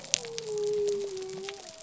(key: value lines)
label: biophony
recorder: SoundTrap 300